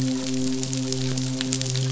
{"label": "biophony, midshipman", "recorder": "SoundTrap 500"}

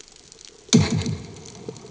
{"label": "anthrophony, bomb", "recorder": "HydroMoth"}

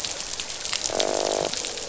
{"label": "biophony, croak", "recorder": "SoundTrap 500"}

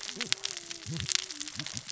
{"label": "biophony, cascading saw", "recorder": "SoundTrap 600 or HydroMoth"}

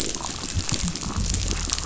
{"label": "biophony", "recorder": "SoundTrap 500"}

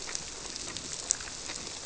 {"label": "biophony", "recorder": "SoundTrap 300"}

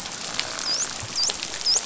{"label": "biophony, dolphin", "recorder": "SoundTrap 500"}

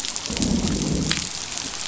{"label": "biophony, growl", "recorder": "SoundTrap 500"}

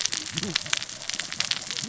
{"label": "biophony, cascading saw", "recorder": "SoundTrap 600 or HydroMoth"}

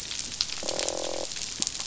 {"label": "biophony, croak", "recorder": "SoundTrap 500"}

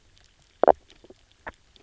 {"label": "biophony, knock croak", "recorder": "SoundTrap 300"}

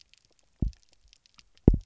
{"label": "biophony, double pulse", "recorder": "SoundTrap 300"}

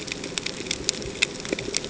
{"label": "ambient", "recorder": "HydroMoth"}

